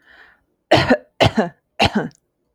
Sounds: Cough